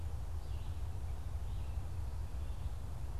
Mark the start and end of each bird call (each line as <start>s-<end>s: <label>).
0.0s-3.2s: Red-eyed Vireo (Vireo olivaceus)